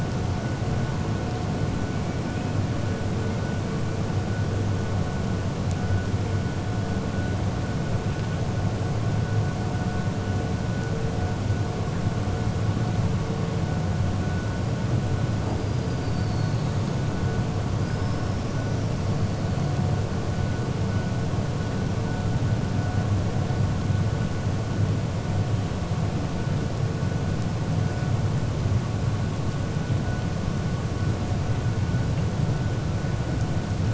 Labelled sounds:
15.7	16.7	killer whale, 3.7 to 4.9 kHz

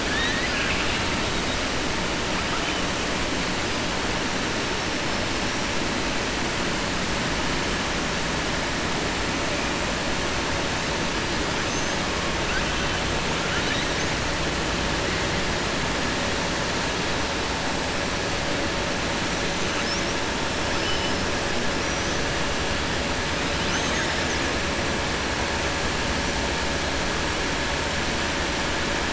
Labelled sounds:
0.0	1.0	killer whale, southern resident, 1.6 to 4.0 kHz
21.7	22.2	killer whale, southern resident, 4.9 to 6.5 kHz
23.6	24.4	killer whale, southern resident, 5.1 to 7.2 kHz

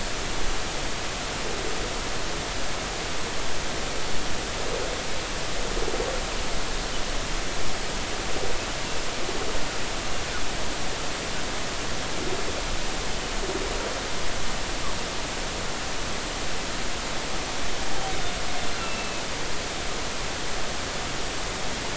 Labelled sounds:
18.8	19.2	humpback whale, 2.5 to 2.8 kHz

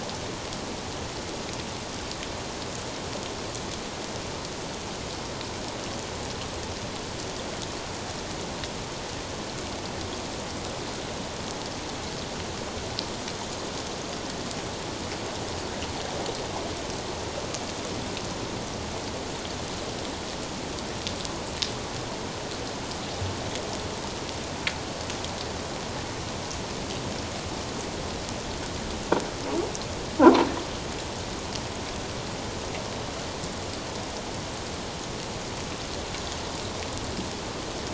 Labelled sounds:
30.2	30.5	croaking sound likely from a nearby submerged object, 0.78 to 1.1 kHz

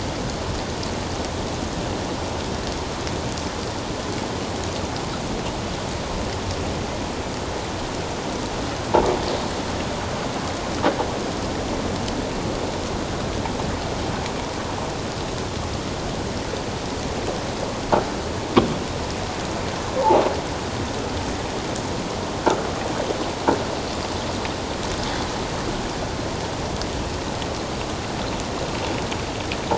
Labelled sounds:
20.0	20.2	croaking sound likely from a nearby submerged object, 0.78 to 1.1 kHz

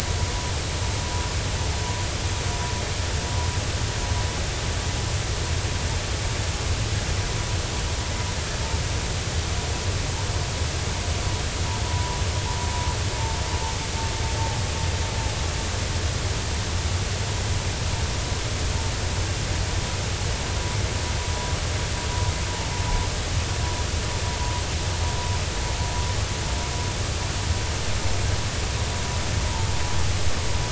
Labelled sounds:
11.9	12.2	vessel noise, 0.90 to 1.1 kHz

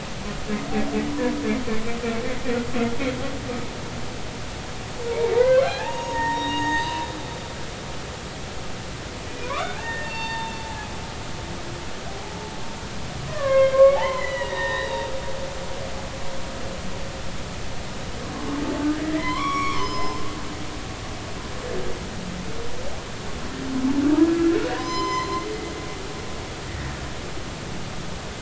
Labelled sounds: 1.1	1.3	humpback whale, 0.93 to 1.0 kHz
5.1	7.0	humpback whale, 0.80 to 7.6 kHz
9.4	10.9	humpback whale, 0.80 to 4.6 kHz
12.1	12.3	humpback whale, 0.80 to 0.90 kHz
13.3	15.1	humpback whale, 0.80 to 4.0 kHz
19.1	20.3	humpback whale, 0.90 to 6.2 kHz
24.7	25.5	humpback whale, 0.86 to 7.3 kHz
26.7	27.0	humpback whale, 1.7 to 2.0 kHz

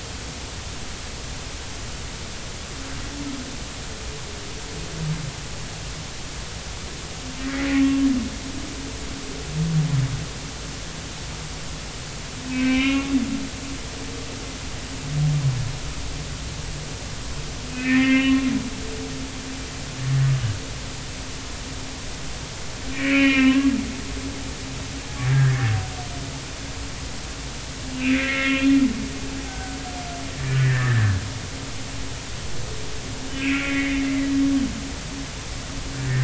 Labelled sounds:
7.4	7.7	humpback whale, 1.8 to 2.0 kHz
12.5	13.1	humpback whale, 0.99 to 3.0 kHz
17.7	18.4	humpback whale, 1.0 to 2.7 kHz
22.9	23.7	humpback whale, 0.99 to 3.1 kHz
25.3	25.7	humpback whale, 1.4 to 1.9 kHz
27.9	28.8	humpback whale, 1.3 to 3.3 kHz
29.5	29.8	humpback whale, 1.5 to 1.6 kHz
30.4	31.2	humpback whale, 1.4 to 2.0 kHz
33.4	34.1	humpback whale, 1.9 to 2.8 kHz
36.0	36.2	humpback whale, 1.7 to 1.9 kHz

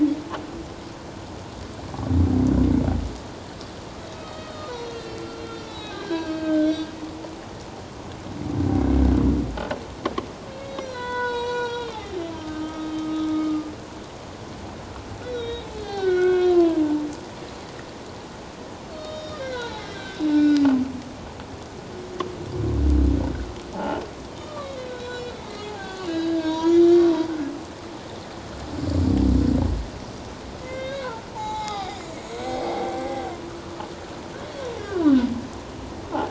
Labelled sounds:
4.0	6.9	humpback whale, 1.1 to 6.2 kHz
10.7	13.3	humpback whale, 0.78 to 7.8 kHz
15.3	16.8	humpback whale, 0.94 to 4.6 kHz
18.9	20.6	humpback whale, 0.81 to 5.6 kHz
23.7	27.0	humpback whale, 0.78 to 7.4 kHz
30.6	32.0	humpback whale, 0.78 to 7.1 kHz
32.4	33.3	humpback whale, 0.78 to 7.9 kHz
34.8	35.3	humpback whale, 0.91 to 1.7 kHz

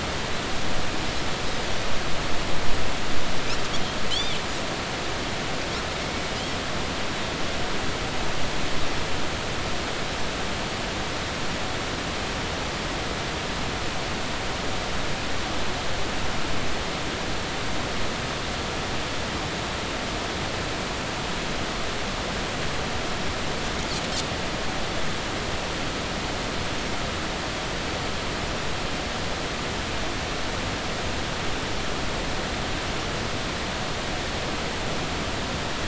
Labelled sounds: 4.1	4.4	Pacific white-sided dolphin, 2.9 to 4.9 kHz
6.0	6.3	Pacific white-sided dolphin, 2.1 to 2.3 kHz

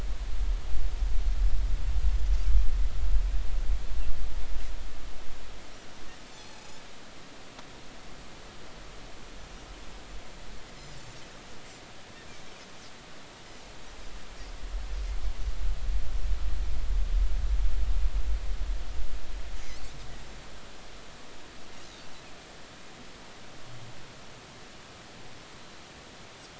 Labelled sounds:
6.3	6.8	Pacific white-sided dolphin, 0.80 to 7.0 kHz

